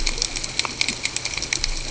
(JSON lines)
{"label": "ambient", "recorder": "HydroMoth"}